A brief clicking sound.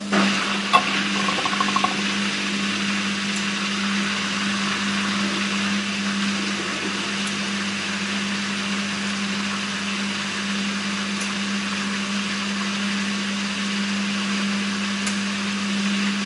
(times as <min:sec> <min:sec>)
0:03.2 0:03.8, 0:07.1 0:07.7, 0:10.9 0:11.4, 0:14.9 0:15.3